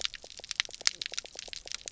{"label": "biophony, knock croak", "recorder": "SoundTrap 300"}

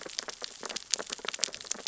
{"label": "biophony, sea urchins (Echinidae)", "recorder": "SoundTrap 600 or HydroMoth"}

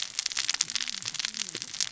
{"label": "biophony, cascading saw", "recorder": "SoundTrap 600 or HydroMoth"}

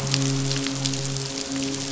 {"label": "biophony, midshipman", "recorder": "SoundTrap 500"}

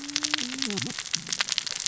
{"label": "biophony, cascading saw", "recorder": "SoundTrap 600 or HydroMoth"}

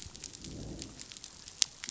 {"label": "biophony, growl", "recorder": "SoundTrap 500"}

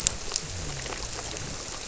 {"label": "biophony", "recorder": "SoundTrap 300"}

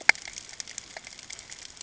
{"label": "ambient", "recorder": "HydroMoth"}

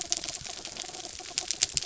{"label": "anthrophony, mechanical", "recorder": "SoundTrap 300"}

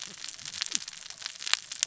{"label": "biophony, cascading saw", "recorder": "SoundTrap 600 or HydroMoth"}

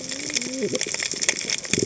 {"label": "biophony, cascading saw", "recorder": "HydroMoth"}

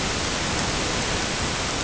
{"label": "ambient", "recorder": "HydroMoth"}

